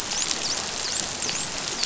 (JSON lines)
{"label": "biophony, dolphin", "recorder": "SoundTrap 500"}